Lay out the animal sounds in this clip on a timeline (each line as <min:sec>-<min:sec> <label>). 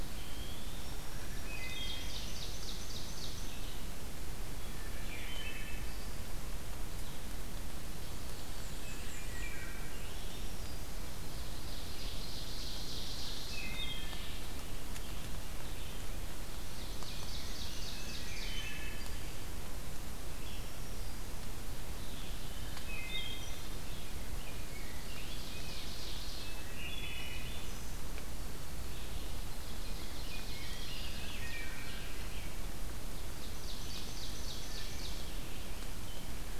0:00.0-0:01.0 Eastern Wood-Pewee (Contopus virens)
0:00.0-0:16.1 Red-eyed Vireo (Vireo olivaceus)
0:00.5-0:01.9 Black-throated Green Warbler (Setophaga virens)
0:01.1-0:02.1 Wood Thrush (Hylocichla mustelina)
0:01.3-0:03.7 Ovenbird (Seiurus aurocapilla)
0:04.6-0:06.2 Wood Thrush (Hylocichla mustelina)
0:08.0-0:09.1 Black-throated Green Warbler (Setophaga virens)
0:08.0-0:09.7 Black-and-white Warbler (Mniotilta varia)
0:09.0-0:10.0 Wood Thrush (Hylocichla mustelina)
0:09.8-0:11.0 Black-throated Green Warbler (Setophaga virens)
0:11.1-0:13.8 Ovenbird (Seiurus aurocapilla)
0:13.5-0:14.4 Wood Thrush (Hylocichla mustelina)
0:13.9-0:18.3 Rose-breasted Grosbeak (Pheucticus ludovicianus)
0:16.6-0:18.8 Ovenbird (Seiurus aurocapilla)
0:18.2-0:19.4 Wood Thrush (Hylocichla mustelina)
0:20.2-0:36.6 Red-eyed Vireo (Vireo olivaceus)
0:20.2-0:21.6 Black-throated Green Warbler (Setophaga virens)
0:22.8-0:23.7 Wood Thrush (Hylocichla mustelina)
0:23.6-0:25.9 Rose-breasted Grosbeak (Pheucticus ludovicianus)
0:24.6-0:26.6 Ovenbird (Seiurus aurocapilla)
0:26.4-0:28.0 Wood Thrush (Hylocichla mustelina)
0:29.4-0:31.4 Ovenbird (Seiurus aurocapilla)
0:29.8-0:32.7 Rose-breasted Grosbeak (Pheucticus ludovicianus)
0:31.2-0:32.3 Wood Thrush (Hylocichla mustelina)
0:33.2-0:35.3 Ovenbird (Seiurus aurocapilla)
0:34.6-0:35.2 Wood Thrush (Hylocichla mustelina)